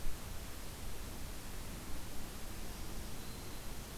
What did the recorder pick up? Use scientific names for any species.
Setophaga virens